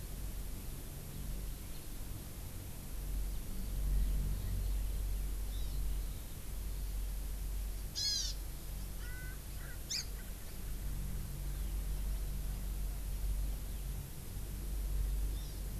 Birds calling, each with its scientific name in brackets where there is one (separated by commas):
Hawaiian Hawk (Buteo solitarius), Hawaii Amakihi (Chlorodrepanis virens), Erckel's Francolin (Pternistis erckelii)